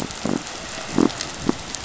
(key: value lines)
label: biophony
recorder: SoundTrap 500